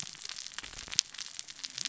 {"label": "biophony, cascading saw", "recorder": "SoundTrap 600 or HydroMoth"}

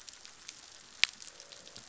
{"label": "biophony, croak", "recorder": "SoundTrap 500"}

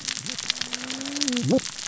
{"label": "biophony, cascading saw", "recorder": "SoundTrap 600 or HydroMoth"}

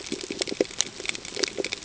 {"label": "ambient", "recorder": "HydroMoth"}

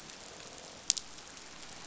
{"label": "biophony, croak", "recorder": "SoundTrap 500"}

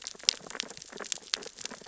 {"label": "biophony, sea urchins (Echinidae)", "recorder": "SoundTrap 600 or HydroMoth"}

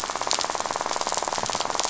{"label": "biophony, rattle", "recorder": "SoundTrap 500"}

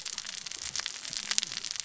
{"label": "biophony, cascading saw", "recorder": "SoundTrap 600 or HydroMoth"}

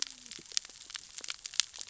{"label": "biophony, cascading saw", "recorder": "SoundTrap 600 or HydroMoth"}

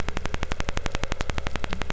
{"label": "anthrophony, boat engine", "recorder": "SoundTrap 500"}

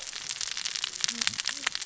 {"label": "biophony, cascading saw", "recorder": "SoundTrap 600 or HydroMoth"}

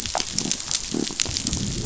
{"label": "biophony", "recorder": "SoundTrap 500"}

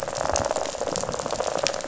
{"label": "biophony, rattle", "recorder": "SoundTrap 500"}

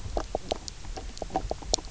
{"label": "biophony, knock croak", "recorder": "SoundTrap 300"}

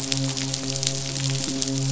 {"label": "biophony, midshipman", "recorder": "SoundTrap 500"}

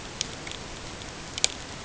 {"label": "ambient", "recorder": "HydroMoth"}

